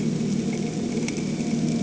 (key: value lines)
label: anthrophony, boat engine
recorder: HydroMoth